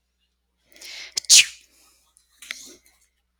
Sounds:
Sneeze